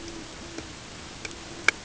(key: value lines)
label: ambient
recorder: HydroMoth